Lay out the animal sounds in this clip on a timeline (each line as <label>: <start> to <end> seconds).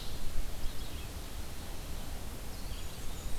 Red-eyed Vireo (Vireo olivaceus): 0.0 to 3.4 seconds
Blackburnian Warbler (Setophaga fusca): 2.6 to 3.4 seconds